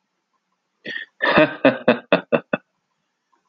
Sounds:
Laughter